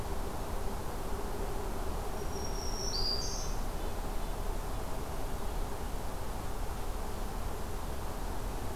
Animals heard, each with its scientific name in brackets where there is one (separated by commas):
Red-breasted Nuthatch (Sitta canadensis), Black-throated Green Warbler (Setophaga virens)